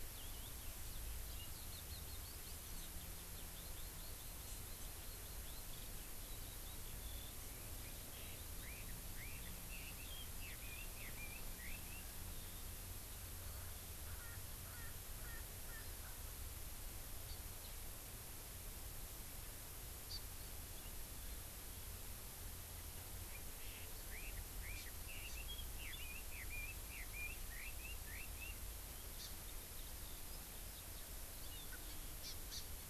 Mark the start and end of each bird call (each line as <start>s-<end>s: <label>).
0.0s-10.9s: Eurasian Skylark (Alauda arvensis)
8.6s-12.1s: Red-billed Leiothrix (Leiothrix lutea)
14.2s-16.4s: Erckel's Francolin (Pternistis erckelii)
20.1s-20.2s: Hawaii Amakihi (Chlorodrepanis virens)
24.1s-28.5s: Red-billed Leiothrix (Leiothrix lutea)
24.7s-24.9s: Hawaii Amakihi (Chlorodrepanis virens)
25.3s-25.4s: Hawaii Amakihi (Chlorodrepanis virens)
29.2s-29.3s: Hawaii Amakihi (Chlorodrepanis virens)
31.7s-31.8s: Erckel's Francolin (Pternistis erckelii)
32.2s-32.6s: Hawaii Amakihi (Chlorodrepanis virens)